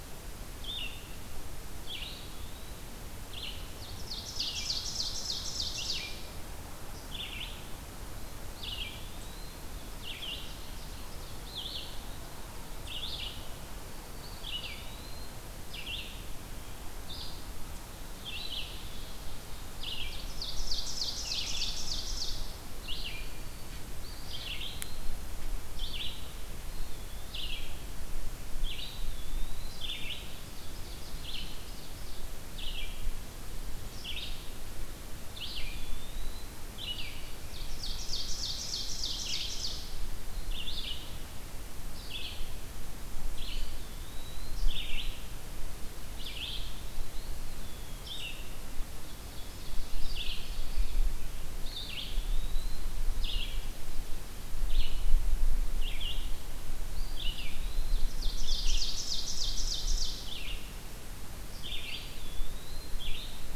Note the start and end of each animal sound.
0.0s-37.4s: Red-eyed Vireo (Vireo olivaceus)
1.7s-2.9s: Eastern Wood-Pewee (Contopus virens)
3.5s-6.4s: Ovenbird (Seiurus aurocapilla)
8.5s-9.7s: Eastern Wood-Pewee (Contopus virens)
9.6s-11.5s: Ovenbird (Seiurus aurocapilla)
13.9s-14.8s: Black-throated Green Warbler (Setophaga virens)
14.1s-15.4s: Eastern Wood-Pewee (Contopus virens)
18.0s-22.6s: Ovenbird (Seiurus aurocapilla)
18.1s-19.2s: Eastern Wood-Pewee (Contopus virens)
23.0s-23.9s: Black-throated Green Warbler (Setophaga virens)
23.9s-25.2s: Eastern Wood-Pewee (Contopus virens)
26.6s-27.7s: Eastern Wood-Pewee (Contopus virens)
28.6s-29.9s: Eastern Wood-Pewee (Contopus virens)
30.3s-32.4s: Ovenbird (Seiurus aurocapilla)
35.2s-36.6s: Eastern Wood-Pewee (Contopus virens)
37.2s-40.0s: Ovenbird (Seiurus aurocapilla)
38.8s-63.6s: Red-eyed Vireo (Vireo olivaceus)
43.1s-45.0s: Eastern Wood-Pewee (Contopus virens)
47.0s-48.4s: Eastern Wood-Pewee (Contopus virens)
48.8s-51.2s: Ovenbird (Seiurus aurocapilla)
51.5s-53.1s: Eastern Wood-Pewee (Contopus virens)
56.9s-58.3s: Eastern Wood-Pewee (Contopus virens)
57.9s-60.3s: Ovenbird (Seiurus aurocapilla)
61.7s-63.2s: Eastern Wood-Pewee (Contopus virens)

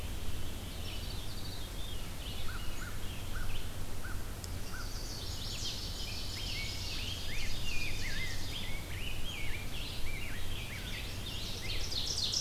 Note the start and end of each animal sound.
0.0s-2.6s: Veery (Catharus fuscescens)
0.0s-12.4s: Red-eyed Vireo (Vireo olivaceus)
2.9s-5.0s: American Crow (Corvus brachyrhynchos)
4.5s-5.9s: Chestnut-sided Warbler (Setophaga pensylvanica)
5.6s-8.8s: Ovenbird (Seiurus aurocapilla)
5.8s-11.9s: Rose-breasted Grosbeak (Pheucticus ludovicianus)
10.4s-11.6s: Chestnut-sided Warbler (Setophaga pensylvanica)
11.6s-12.4s: Ovenbird (Seiurus aurocapilla)

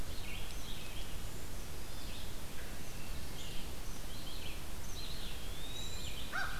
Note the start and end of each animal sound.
0.0s-6.6s: Red-eyed Vireo (Vireo olivaceus)
4.8s-6.4s: Eastern Wood-Pewee (Contopus virens)
5.6s-6.2s: Cedar Waxwing (Bombycilla cedrorum)
6.0s-6.6s: American Crow (Corvus brachyrhynchos)

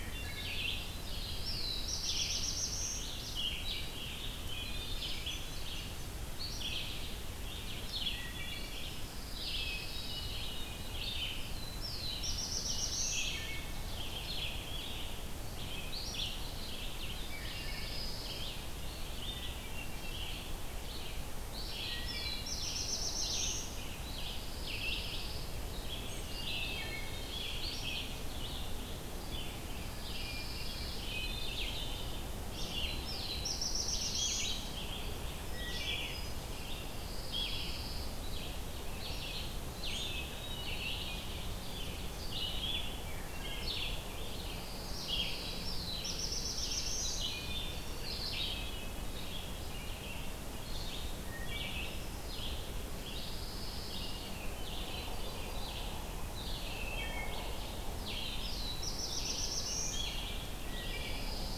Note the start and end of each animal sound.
0.0s-0.6s: Wood Thrush (Hylocichla mustelina)
0.0s-46.9s: Red-eyed Vireo (Vireo olivaceus)
0.9s-3.2s: Black-throated Blue Warbler (Setophaga caerulescens)
4.3s-5.3s: Wood Thrush (Hylocichla mustelina)
4.7s-6.2s: Hermit Thrush (Catharus guttatus)
8.1s-9.0s: Wood Thrush (Hylocichla mustelina)
8.7s-10.5s: Pine Warbler (Setophaga pinus)
9.5s-10.9s: Hermit Thrush (Catharus guttatus)
11.3s-13.5s: Black-throated Blue Warbler (Setophaga caerulescens)
13.2s-14.0s: Wood Thrush (Hylocichla mustelina)
17.1s-18.6s: Pine Warbler (Setophaga pinus)
17.2s-18.2s: Wood Thrush (Hylocichla mustelina)
19.3s-20.4s: Hermit Thrush (Catharus guttatus)
21.8s-22.8s: Wood Thrush (Hylocichla mustelina)
21.9s-24.0s: Black-throated Blue Warbler (Setophaga caerulescens)
24.0s-25.9s: Pine Warbler (Setophaga pinus)
26.6s-27.5s: Wood Thrush (Hylocichla mustelina)
29.6s-31.4s: Pine Warbler (Setophaga pinus)
30.2s-31.6s: Hermit Thrush (Catharus guttatus)
32.5s-34.7s: Black-throated Blue Warbler (Setophaga caerulescens)
35.4s-36.6s: Wood Thrush (Hylocichla mustelina)
36.6s-38.4s: Pine Warbler (Setophaga pinus)
40.1s-41.2s: Hermit Thrush (Catharus guttatus)
44.3s-45.9s: Pine Warbler (Setophaga pinus)
45.4s-47.3s: Black-throated Blue Warbler (Setophaga caerulescens)
47.1s-48.0s: Wood Thrush (Hylocichla mustelina)
47.9s-61.6s: Red-eyed Vireo (Vireo olivaceus)
48.5s-49.5s: Hermit Thrush (Catharus guttatus)
51.0s-51.7s: Wood Thrush (Hylocichla mustelina)
53.0s-54.5s: Pine Warbler (Setophaga pinus)
54.3s-55.7s: Hermit Thrush (Catharus guttatus)
56.7s-57.7s: Wood Thrush (Hylocichla mustelina)
57.9s-60.2s: Black-throated Blue Warbler (Setophaga caerulescens)
60.7s-61.6s: Pine Warbler (Setophaga pinus)
60.8s-61.5s: Wood Thrush (Hylocichla mustelina)

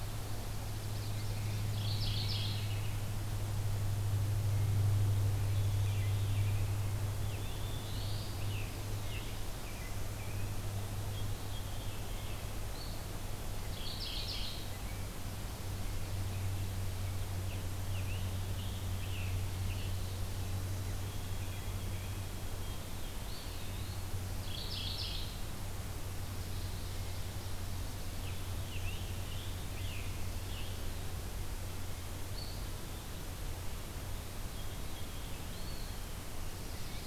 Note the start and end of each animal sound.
0.0s-1.6s: Common Yellowthroat (Geothlypis trichas)
1.5s-2.8s: Mourning Warbler (Geothlypis philadelphia)
4.9s-6.8s: Veery (Catharus fuscescens)
7.1s-8.4s: Black-throated Blue Warbler (Setophaga caerulescens)
8.3s-10.6s: American Robin (Turdus migratorius)
10.7s-12.6s: Veery (Catharus fuscescens)
13.5s-14.7s: Mourning Warbler (Geothlypis philadelphia)
17.2s-20.0s: Scarlet Tanager (Piranga olivacea)
20.2s-22.9s: White-throated Sparrow (Zonotrichia albicollis)
23.1s-24.2s: Eastern Wood-Pewee (Contopus virens)
24.3s-25.6s: Mourning Warbler (Geothlypis philadelphia)
28.0s-30.9s: Scarlet Tanager (Piranga olivacea)
32.3s-33.3s: Eastern Wood-Pewee (Contopus virens)
35.4s-36.1s: Eastern Wood-Pewee (Contopus virens)

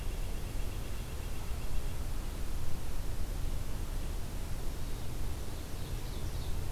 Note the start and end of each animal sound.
0.0s-2.0s: Red-breasted Nuthatch (Sitta canadensis)
5.4s-6.5s: Ovenbird (Seiurus aurocapilla)

